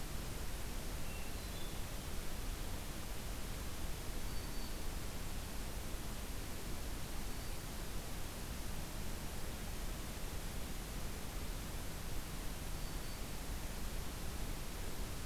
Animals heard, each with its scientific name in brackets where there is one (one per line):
Hermit Thrush (Catharus guttatus)
Black-throated Green Warbler (Setophaga virens)